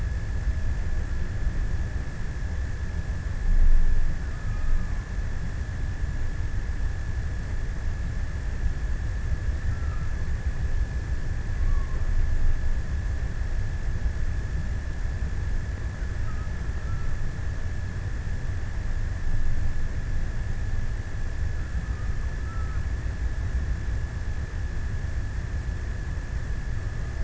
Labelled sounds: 9.0	10.6	killer whale, offshore, 0.78 to 1.8 kHz
11.0	12.3	killer whale, offshore, 0.68 to 1.5 kHz
16.0	17.5	killer whale, offshore, 0.88 to 1.6 kHz
21.5	23.7	killer whale, offshore, 0.82 to 1.5 kHz

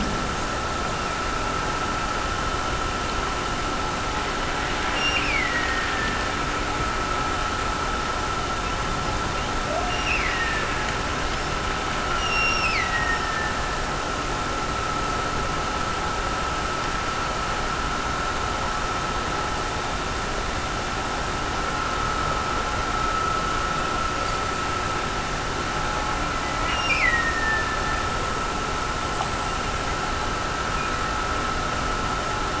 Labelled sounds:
4.8	6.5	killer whale, Bigg's (transient), Gulf of Alaska transient, 1.6 to 5.8 kHz
9.9	11.2	killer whale, Bigg's (transient), Gulf of Alaska transient, 1.6 to 5.9 kHz
12.1	14.1	killer whale, Bigg's (transient), Gulf of Alaska transient, 1.7 to 5.8 kHz
26.6	28.3	killer whale, Bigg's (transient), Gulf of Alaska transient, 1.7 to 5.8 kHz

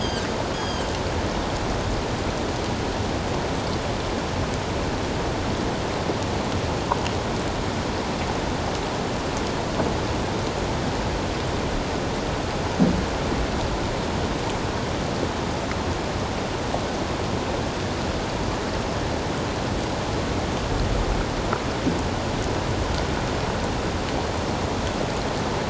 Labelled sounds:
0.0	0.9	Pacific white-sided dolphin, 3.1 to 6.7 kHz

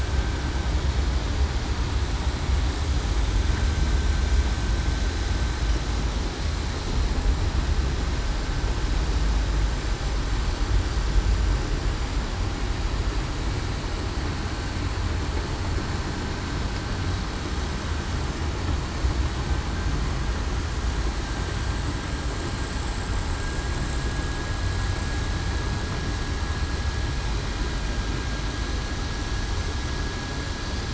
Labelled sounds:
23.4	23.7	vessel noise, 1.6 to 1.7 kHz
24.0	24.4	vessel noise, 1.6 to 1.7 kHz

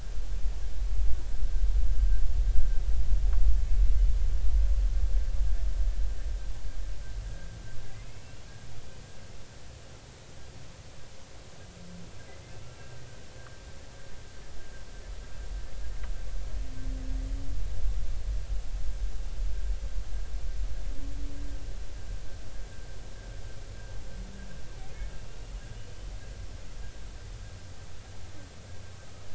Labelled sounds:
8.0	8.4	humpback whale, 2.5 to 2.8 kHz
12.7	13.0	humpback whale, 2.7 to 2.8 kHz
24.9	25.1	humpback whale, 2.0 to 2.2 kHz

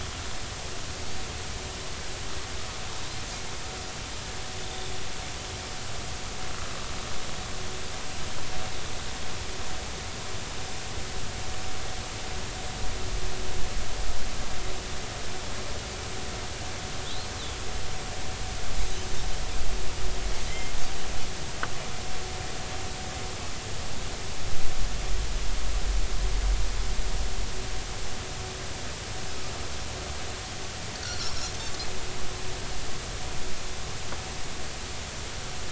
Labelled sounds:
20.5	20.7	Pacific white-sided dolphin, 1.9 to 2.2 kHz
31.0	31.5	Pacific white-sided dolphin, 4.0 to 5.6 kHz

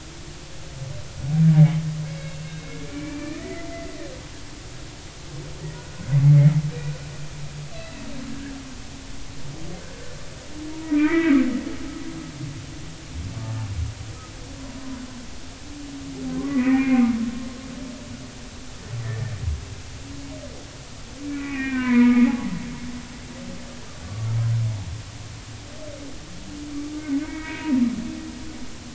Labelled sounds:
2.3	4.0	humpback whale, 1.7 to 2.8 kHz
5.7	7.0	humpback whale, 1.4 to 2.5 kHz
7.7	8.6	humpback whale, 1.4 to 4.1 kHz
10.7	11.4	humpback whale, 0.90 to 2.5 kHz
16.3	17.1	humpback whale, 0.99 to 2.7 kHz
21.3	22.3	humpback whale, 0.90 to 2.6 kHz
24.0	24.3	humpback whale, 1.1 to 1.2 kHz
27.2	27.7	humpback whale, 1.5 to 2.9 kHz

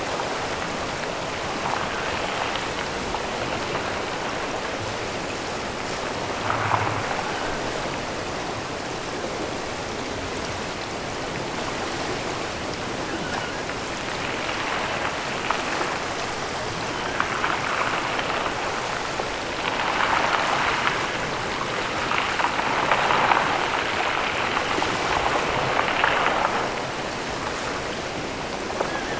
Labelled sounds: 12.9	13.6	killer whale, offshore, 1.2 to 3.2 kHz

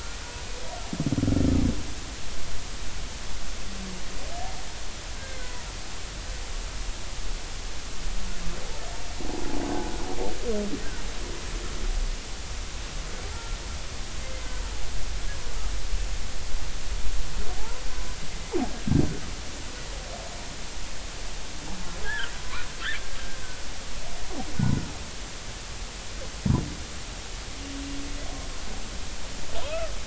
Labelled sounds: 5.2	5.7	humpback whale, 0.90 to 1.7 kHz
9.7	9.9	humpback whale, 1.4 to 1.6 kHz
13.3	13.6	humpback whale, 1.3 to 1.4 kHz
14.2	14.6	humpback whale, 2.0 to 2.1 kHz
17.6	17.8	humpback whale, 0.80 to 1.1 kHz
22.0	22.7	humpback whale, 0.96 to 3.5 kHz
29.6	29.9	humpback whale, 0.93 to 2.7 kHz

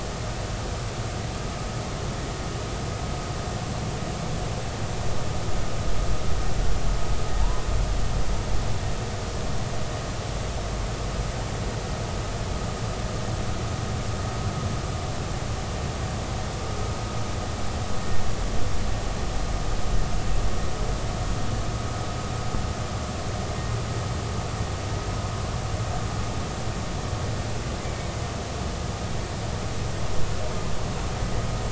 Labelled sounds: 7.4	7.7	humpback whale, 0.86 to 1.1 kHz

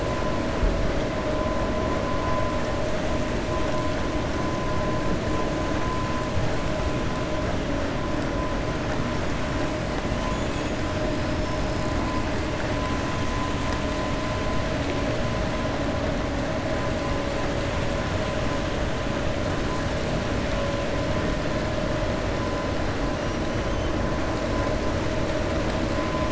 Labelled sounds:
11.3	11.8	killer whale, 5.1 to 5.4 kHz

